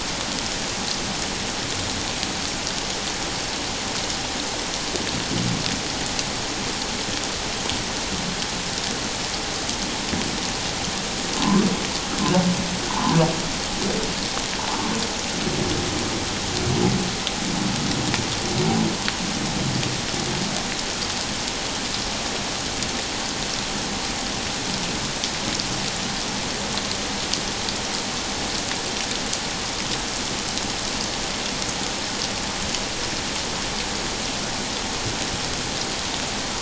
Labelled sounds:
11.4	11.7	humpback whale, 0.81 to 1.2 kHz
12.9	13.2	humpback whale, 0.78 to 1.2 kHz

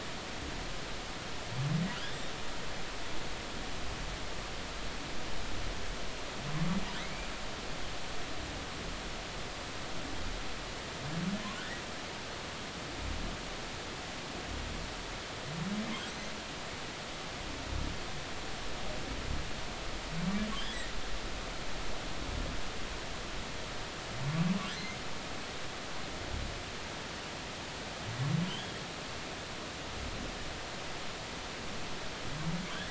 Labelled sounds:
28.5	28.8	humpback whale, 2.8 to 3.5 kHz

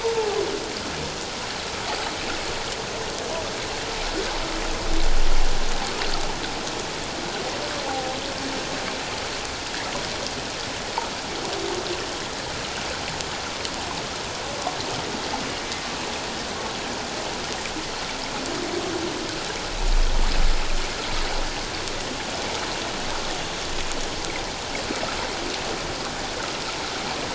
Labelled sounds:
7.9	8.2	humpback whale, 0.78 to 0.88 kHz

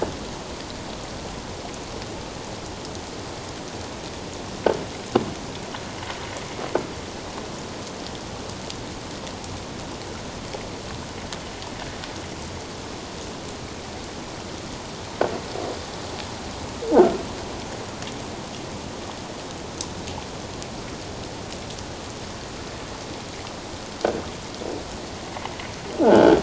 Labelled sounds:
26.0	26.4	croaking sound likely from a nearby submerged object, 1.3 to 3.3 kHz

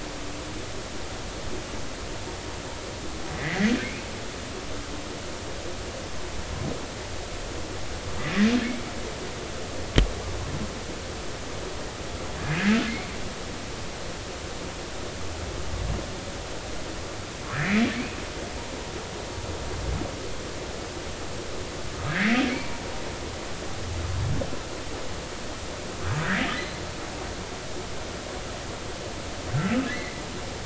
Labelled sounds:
3.3	3.7	humpback whale, 1.7 to 2.2 kHz
17.5	17.8	humpback whale, 1.6 to 2.5 kHz
22.1	22.8	humpback whale, 0.90 to 2.3 kHz
29.9	30.1	humpback whale, 1.9 to 2.2 kHz

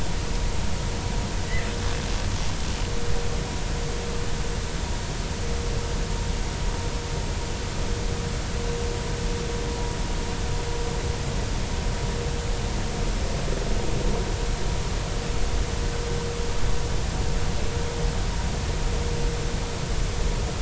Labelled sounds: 1.4	1.7	killer whale, Bigg's (transient), 1.8 to 2.1 kHz

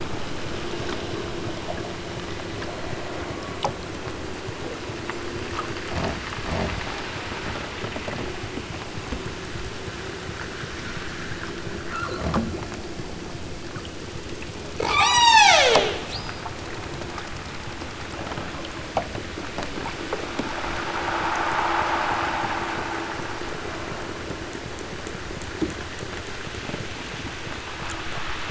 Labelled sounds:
14.8	16.5	killer whale, southern Alaska resident, 0.23 to 8.0 kHz

